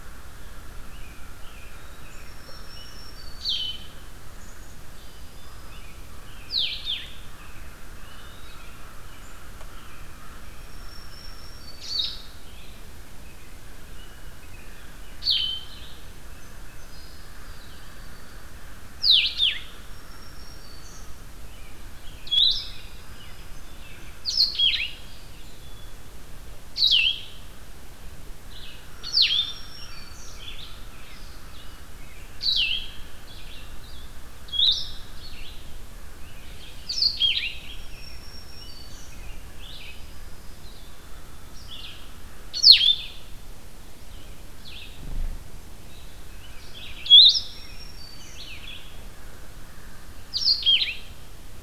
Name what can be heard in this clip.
American Crow, American Robin, Black-throated Green Warbler, Blue-headed Vireo, Song Sparrow